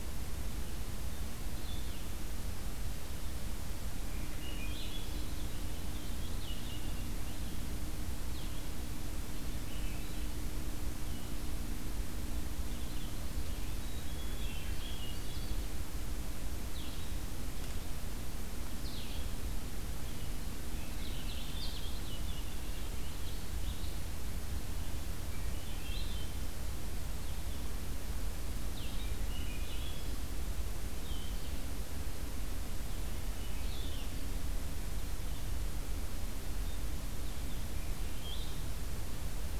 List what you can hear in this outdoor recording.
Blue-headed Vireo, Swainson's Thrush, unidentified call, Black-capped Chickadee